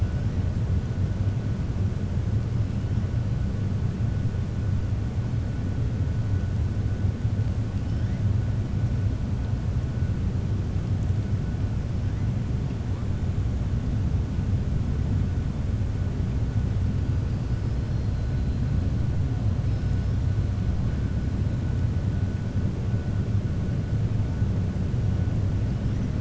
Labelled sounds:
19.6	20.2	killer whale, 4.5 to 5.9 kHz

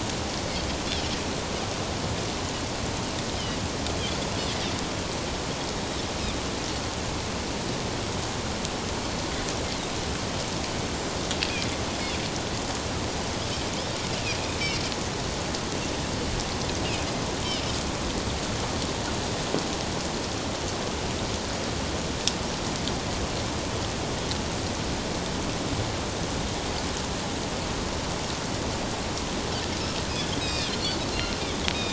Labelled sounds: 30.4	30.8	Pacific white-sided dolphin, 2.4 to 5.7 kHz

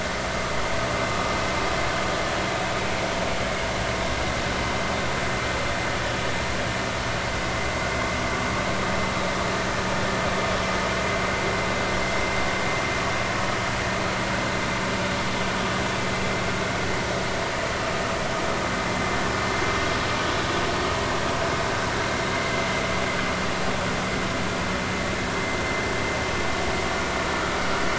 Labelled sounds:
22.3	22.6	vessel noise, 2.0 to 2.1 kHz

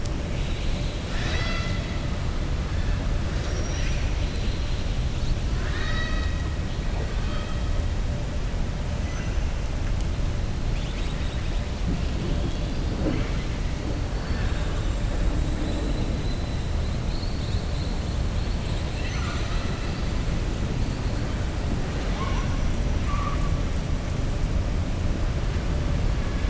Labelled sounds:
5.5	6.4	killer whale, southern resident, 0.65 to 6.3 kHz
14.2	14.8	killer whale, southern resident, 0.79 to 5.4 kHz

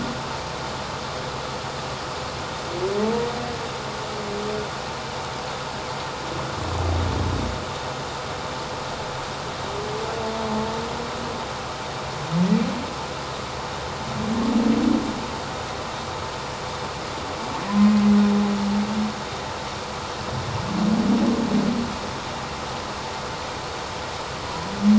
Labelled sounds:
17.7	17.9	humpback whale, 0.94 to 1.1 kHz

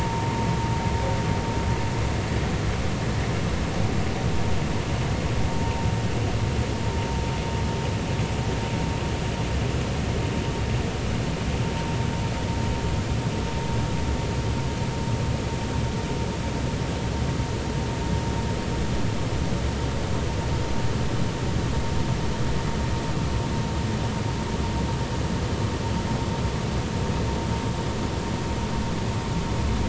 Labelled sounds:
5.5	5.9	vessel noise, 0.86 to 0.99 kHz

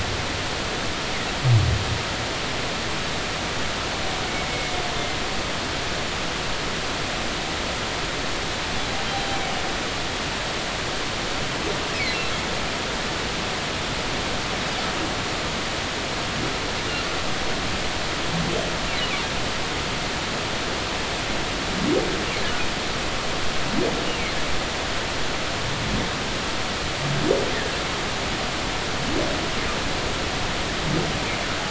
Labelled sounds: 9.0	9.3	humpback whale, 3.9 to 4.0 kHz

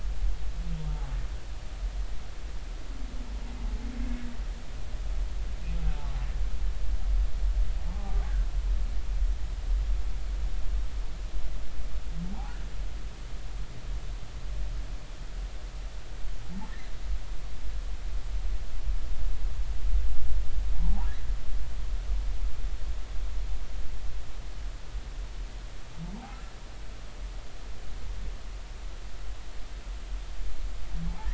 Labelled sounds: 7.9	8.2	humpback whale, 0.80 to 0.93 kHz
12.3	12.6	humpback whale, 0.80 to 1.0 kHz
31.1	31.3	humpback whale, 0.80 to 1.0 kHz

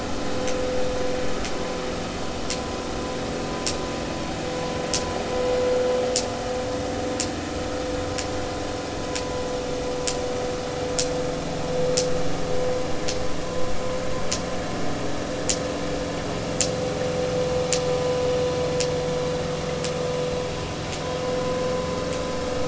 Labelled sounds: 13.5	13.7	vessel noise, 0.99 to 1.1 kHz

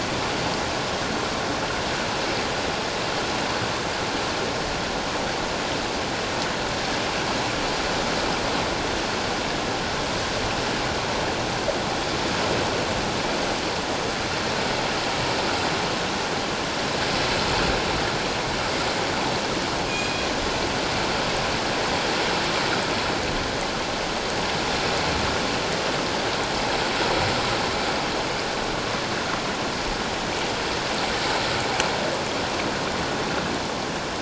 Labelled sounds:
19.9	20.3	killer whale, northern resident, G clan, 2.4 to 6.7 kHz

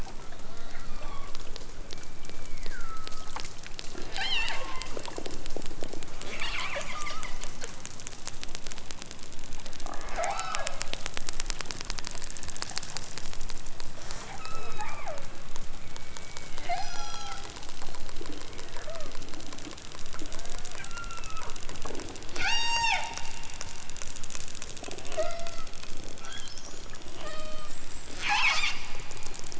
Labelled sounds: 0.8	1.5	killer whale, southern Alaska resident, 0.64 to 7.9 kHz
1.8	3.4	killer whale, southern Alaska resident, 0.87 to 2.6 kHz
4.1	4.7	killer whale, southern Alaska resident, 0.37 to 8.0 kHz
6.2	7.3	killer whale, southern Alaska resident, 0.28 to 7.0 kHz
10.0	10.7	killer whale, southern Alaska resident, 0.32 to 5.6 kHz
13.8	15.2	killer whale, southern Alaska resident, 0.37 to 8.0 kHz
15.8	17.6	killer whale, southern Alaska resident, 0.37 to 8.0 kHz
18.4	19.2	killer whale, southern Alaska resident, 0.23 to 3.2 kHz
20.9	21.6	killer whale, southern Alaska resident, 0.83 to 8.0 kHz
22.3	23.0	killer whale, southern Alaska resident, 0.41 to 8.0 kHz
25.1	25.7	killer whale, southern Alaska resident, 0.28 to 5.8 kHz
27.2	27.8	killer whale, southern Alaska resident, 0.37 to 6.5 kHz
28.2	28.8	killer whale, southern Alaska resident, 0.41 to 8.0 kHz

